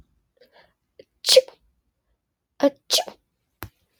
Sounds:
Sneeze